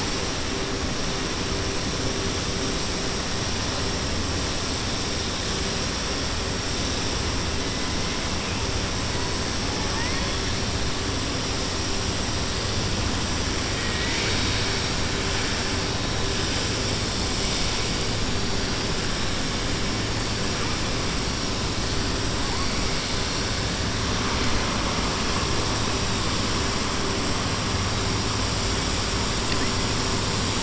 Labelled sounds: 13.7	14.7	killer whale, 0.99 to 6.8 kHz

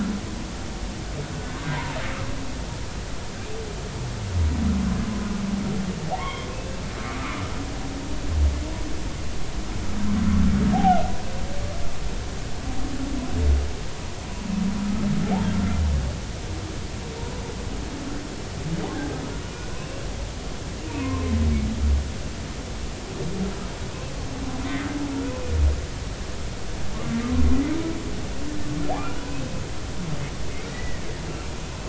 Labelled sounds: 1.3	2.0	humpback whale, 0.83 to 1.6 kHz
6.2	6.5	humpback whale, 0.90 to 3.5 kHz
8.0	8.4	humpback whale, 0.99 to 1.4 kHz
10.7	11.0	humpback whale, 0.80 to 0.86 kHz
15.5	15.8	humpback whale, 1.3 to 1.4 kHz
19.7	20.0	humpback whale, 2.5 to 2.9 kHz
20.9	21.3	humpback whale, 0.86 to 1.2 kHz
30.7	31.1	humpback whale, 1.8 to 2.0 kHz

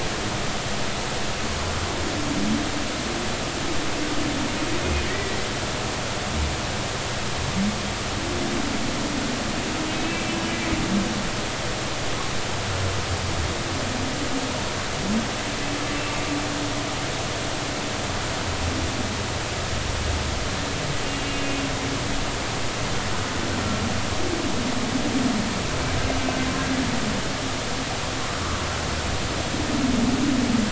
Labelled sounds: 5.1	5.4	humpback whale, 1.8 to 2.0 kHz
9.9	10.3	humpback whale, 2.3 to 2.7 kHz
21.3	21.6	humpback whale, 2.7 to 2.9 kHz
26.2	26.5	humpback whale, 1.5 to 1.6 kHz

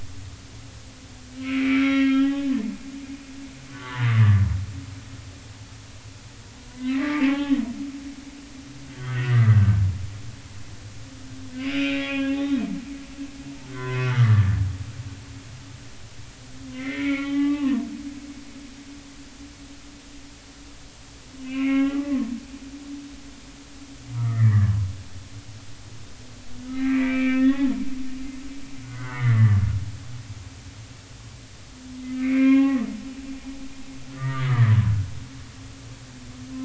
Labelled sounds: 1.3	2.5	humpback whale, 0.80 to 5.8 kHz
3.7	4.4	humpback whale, 0.86 to 1.8 kHz
6.7	7.6	humpback whale, 0.80 to 3.2 kHz
9.0	9.6	humpback whale, 1.1 to 3.4 kHz
11.5	12.6	humpback whale, 0.80 to 5.1 kHz
13.7	14.6	humpback whale, 0.96 to 2.6 kHz
16.7	17.8	humpback whale, 0.80 to 3.2 kHz
21.4	22.3	humpback whale, 0.93 to 3.1 kHz
24.1	24.7	humpback whale, 1.1 to 2.1 kHz
26.7	27.7	humpback whale, 1.2 to 2.7 kHz
28.8	29.6	humpback whale, 1.1 to 2.3 kHz
32.1	32.9	humpback whale, 0.80 to 2.8 kHz
34.1	34.7	humpback whale, 1.1 to 2.1 kHz

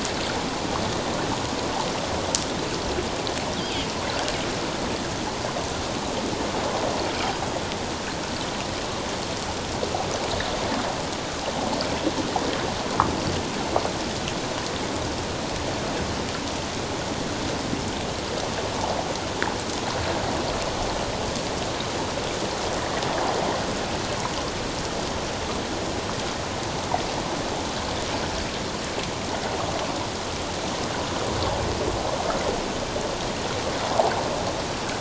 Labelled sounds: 7.0	7.3	water noise, 2.2 to 2.5 kHz

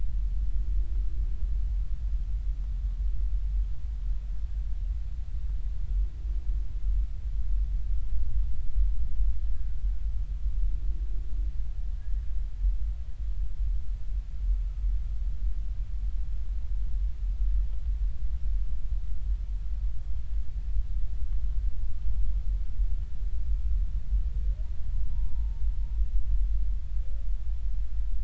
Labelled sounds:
25.1	25.6	humpback whale, 0.86 to 0.99 kHz

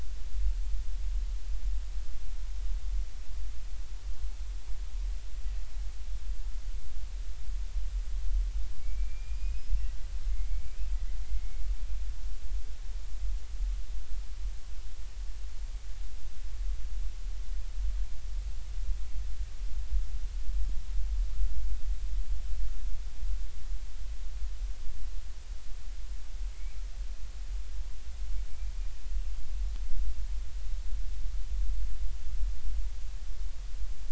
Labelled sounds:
8.8	9.8	killer whale, Bigg's (transient), 2.2 to 5.3 kHz
10.3	11.6	killer whale, Bigg's (transient), 2.1 to 2.4 kHz
27.5	27.8	killer whale, Bigg's (transient), 2.0 to 2.5 kHz

